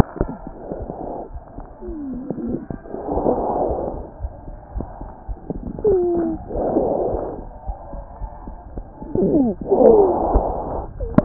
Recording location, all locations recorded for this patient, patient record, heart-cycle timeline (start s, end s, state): aortic valve (AV)
aortic valve (AV)+pulmonary valve (PV)+tricuspid valve (TV)+mitral valve (MV)
#Age: Child
#Sex: Male
#Height: 105.0 cm
#Weight: 18.1 kg
#Pregnancy status: False
#Murmur: Unknown
#Murmur locations: nan
#Most audible location: nan
#Systolic murmur timing: nan
#Systolic murmur shape: nan
#Systolic murmur grading: nan
#Systolic murmur pitch: nan
#Systolic murmur quality: nan
#Diastolic murmur timing: nan
#Diastolic murmur shape: nan
#Diastolic murmur grading: nan
#Diastolic murmur pitch: nan
#Diastolic murmur quality: nan
#Outcome: Abnormal
#Campaign: 2015 screening campaign
0.00	1.30	unannotated
1.30	1.41	S1
1.41	1.54	systole
1.54	1.64	S2
1.64	1.85	diastole
1.85	1.97	S1
1.97	4.20	unannotated
4.20	4.34	S1
4.34	4.46	systole
4.46	4.54	S2
4.54	4.74	diastole
4.74	4.88	S1
4.88	4.99	systole
4.99	5.08	S2
5.08	5.26	diastole
5.26	5.40	S1
5.40	5.50	systole
5.50	5.62	S2
5.62	7.63	unannotated
7.63	7.80	S1
7.80	7.92	systole
7.92	8.05	S2
8.05	8.19	diastole
8.19	8.32	S1
8.32	8.45	systole
8.45	8.57	S2
8.57	8.74	diastole
8.74	8.85	S1
8.85	11.25	unannotated